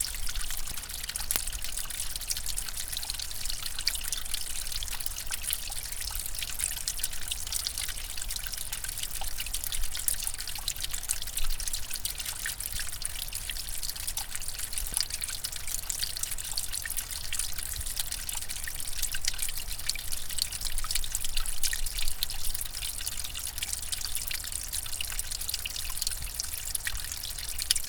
Is it ocean waves crashing on rocks?
no